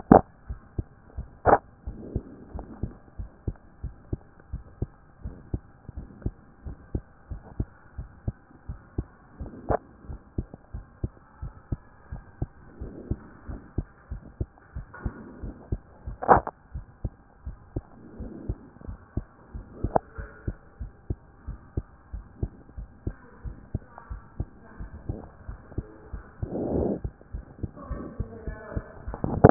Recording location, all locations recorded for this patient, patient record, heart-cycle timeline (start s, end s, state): pulmonary valve (PV)
aortic valve (AV)+pulmonary valve (PV)+tricuspid valve (TV)+mitral valve (MV)
#Age: Child
#Sex: Male
#Height: 123.0 cm
#Weight: 20.5 kg
#Pregnancy status: False
#Murmur: Absent
#Murmur locations: nan
#Most audible location: nan
#Systolic murmur timing: nan
#Systolic murmur shape: nan
#Systolic murmur grading: nan
#Systolic murmur pitch: nan
#Systolic murmur quality: nan
#Diastolic murmur timing: nan
#Diastolic murmur shape: nan
#Diastolic murmur grading: nan
#Diastolic murmur pitch: nan
#Diastolic murmur quality: nan
#Outcome: Abnormal
#Campaign: 2014 screening campaign
0.00	1.86	unannotated
1.86	1.98	S1
1.98	2.14	systole
2.14	2.22	S2
2.22	2.54	diastole
2.54	2.66	S1
2.66	2.82	systole
2.82	2.92	S2
2.92	3.18	diastole
3.18	3.30	S1
3.30	3.46	systole
3.46	3.56	S2
3.56	3.82	diastole
3.82	3.94	S1
3.94	4.10	systole
4.10	4.20	S2
4.20	4.52	diastole
4.52	4.64	S1
4.64	4.80	systole
4.80	4.90	S2
4.90	5.24	diastole
5.24	5.36	S1
5.36	5.52	systole
5.52	5.62	S2
5.62	5.96	diastole
5.96	6.08	S1
6.08	6.24	systole
6.24	6.34	S2
6.34	6.66	diastole
6.66	6.76	S1
6.76	6.92	systole
6.92	7.02	S2
7.02	7.30	diastole
7.30	7.42	S1
7.42	7.58	systole
7.58	7.68	S2
7.68	7.98	diastole
7.98	8.08	S1
8.08	8.26	systole
8.26	8.36	S2
8.36	8.68	diastole
8.68	8.80	S1
8.80	8.96	systole
8.96	9.06	S2
9.06	9.40	diastole
9.40	9.52	S1
9.52	9.68	systole
9.68	9.78	S2
9.78	10.08	diastole
10.08	10.20	S1
10.20	10.36	systole
10.36	10.46	S2
10.46	10.74	diastole
10.74	10.84	S1
10.84	11.02	systole
11.02	11.12	S2
11.12	11.42	diastole
11.42	11.54	S1
11.54	11.70	systole
11.70	11.80	S2
11.80	12.12	diastole
12.12	12.22	S1
12.22	12.40	systole
12.40	12.50	S2
12.50	12.80	diastole
12.80	12.92	S1
12.92	13.08	systole
13.08	13.18	S2
13.18	13.48	diastole
13.48	13.60	S1
13.60	13.76	systole
13.76	13.86	S2
13.86	14.10	diastole
14.10	14.22	S1
14.22	14.38	systole
14.38	14.48	S2
14.48	14.76	diastole
14.76	14.86	S1
14.86	15.04	systole
15.04	15.14	S2
15.14	15.42	diastole
15.42	15.54	S1
15.54	15.70	systole
15.70	15.80	S2
15.80	16.06	diastole
16.06	16.18	S1
16.18	16.30	systole
16.30	16.44	S2
16.44	16.74	diastole
16.74	16.86	S1
16.86	17.02	systole
17.02	17.12	S2
17.12	17.46	diastole
17.46	17.56	S1
17.56	17.74	systole
17.74	17.84	S2
17.84	18.20	diastole
18.20	18.32	S1
18.32	18.48	systole
18.48	18.58	S2
18.58	18.88	diastole
18.88	18.98	S1
18.98	19.16	systole
19.16	19.26	S2
19.26	19.54	diastole
19.54	19.66	S1
19.66	19.82	systole
19.82	19.94	S2
19.94	20.18	diastole
20.18	20.30	S1
20.30	20.46	systole
20.46	20.56	S2
20.56	20.80	diastole
20.80	20.92	S1
20.92	21.08	systole
21.08	21.18	S2
21.18	21.48	diastole
21.48	21.58	S1
21.58	21.76	systole
21.76	21.84	S2
21.84	22.14	diastole
22.14	22.24	S1
22.24	22.40	systole
22.40	22.52	S2
22.52	22.78	diastole
22.78	22.88	S1
22.88	23.06	systole
23.06	23.16	S2
23.16	23.44	diastole
23.44	23.56	S1
23.56	23.72	systole
23.72	23.82	S2
23.82	24.10	diastole
24.10	24.22	S1
24.22	24.38	systole
24.38	24.48	S2
24.48	24.80	diastole
24.80	24.90	S1
24.90	25.08	systole
25.08	25.18	S2
25.18	25.48	diastole
25.48	25.58	S1
25.58	25.76	systole
25.76	25.86	S2
25.86	26.14	diastole
26.14	26.24	S1
26.24	26.40	systole
26.40	26.50	S2
26.50	26.79	diastole
26.79	26.90	S1
26.90	27.04	systole
27.04	27.12	S2
27.12	27.34	diastole
27.34	27.44	S1
27.44	27.62	systole
27.62	27.70	S2
27.70	27.90	diastole
27.90	28.04	S1
28.04	28.18	systole
28.18	28.28	S2
28.28	28.46	diastole
28.46	28.58	S1
28.58	28.74	systole
28.74	28.84	S2
28.84	29.10	diastole
29.10	29.50	unannotated